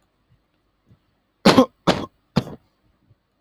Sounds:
Sneeze